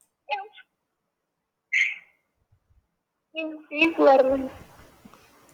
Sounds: Laughter